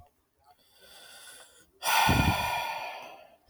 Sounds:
Sigh